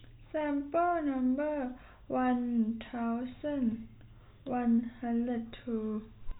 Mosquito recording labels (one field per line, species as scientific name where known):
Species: no mosquito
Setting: cup